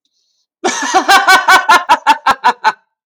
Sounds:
Laughter